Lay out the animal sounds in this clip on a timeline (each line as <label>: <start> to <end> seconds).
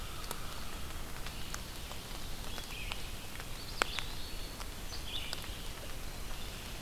Red-eyed Vireo (Vireo olivaceus): 0.3 to 6.8 seconds
Eastern Wood-Pewee (Contopus virens): 3.3 to 4.9 seconds